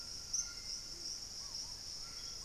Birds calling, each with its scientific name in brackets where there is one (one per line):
White-throated Toucan (Ramphastos tucanus)
Hauxwell's Thrush (Turdus hauxwelli)
Purple-throated Fruitcrow (Querula purpurata)
Gray Antbird (Cercomacra cinerascens)